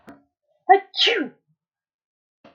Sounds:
Sneeze